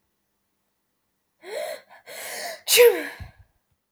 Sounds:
Sneeze